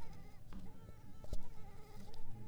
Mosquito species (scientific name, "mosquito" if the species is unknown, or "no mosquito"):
Culex pipiens complex